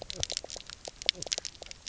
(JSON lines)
{"label": "biophony, knock croak", "recorder": "SoundTrap 300"}